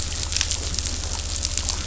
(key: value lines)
label: anthrophony, boat engine
recorder: SoundTrap 500